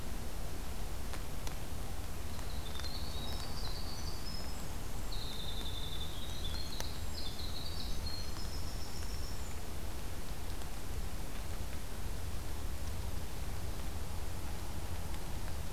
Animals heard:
Winter Wren (Troglodytes hiemalis)

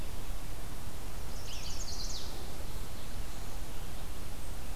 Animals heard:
Red-eyed Vireo (Vireo olivaceus), Chestnut-sided Warbler (Setophaga pensylvanica)

